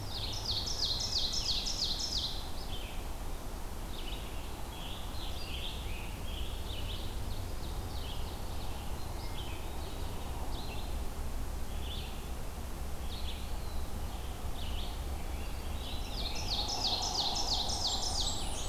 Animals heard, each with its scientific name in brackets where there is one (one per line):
Ovenbird (Seiurus aurocapilla)
Blackburnian Warbler (Setophaga fusca)
Scarlet Tanager (Piranga olivacea)
Eastern Wood-Pewee (Contopus virens)
Red-eyed Vireo (Vireo olivaceus)